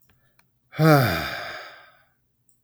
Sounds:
Sigh